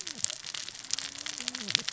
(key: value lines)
label: biophony, cascading saw
recorder: SoundTrap 600 or HydroMoth